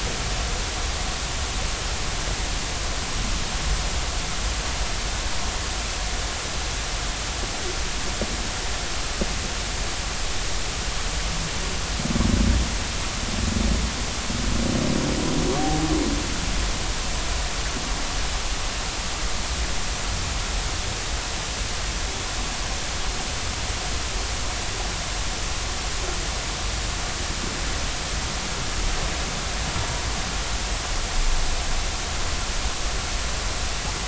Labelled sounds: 15.6	15.9	humpback whale, 0.80 to 0.86 kHz

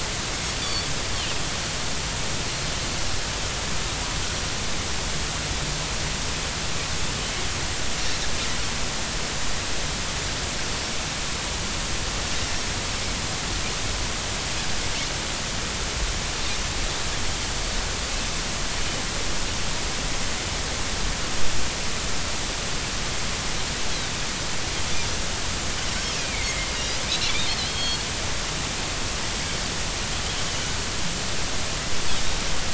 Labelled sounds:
0.6	0.9	Pacific white-sided dolphin, 3.3 to 4.7 kHz
26.1	26.9	Pacific white-sided dolphin, 2.0 to 3.1 kHz
27.6	28.0	Pacific white-sided dolphin, 2.9 to 4.4 kHz

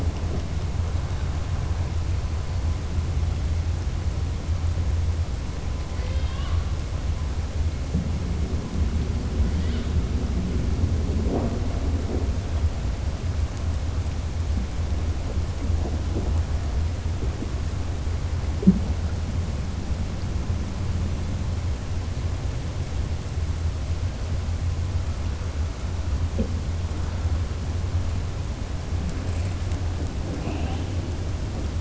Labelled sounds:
5.9	6.6	killer whale, southern resident, 1.1 to 4.8 kHz

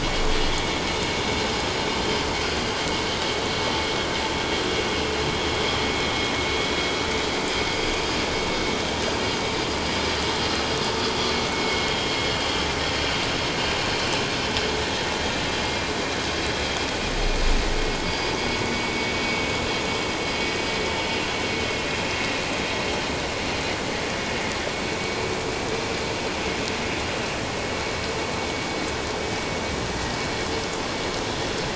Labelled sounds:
2.0	2.2	vessel noise, 3.1 to 3.2 kHz
11.5	11.9	vessel noise, 2.1 to 2.2 kHz
18.0	18.3	vessel noise, 4.5 to 4.9 kHz
18.6	19.1	vessel noise, 2.2 to 2.3 kHz

